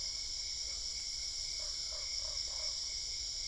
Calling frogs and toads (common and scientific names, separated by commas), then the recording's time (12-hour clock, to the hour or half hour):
Usina tree frog (Boana lundii)
~11pm